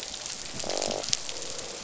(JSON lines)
{"label": "biophony, croak", "recorder": "SoundTrap 500"}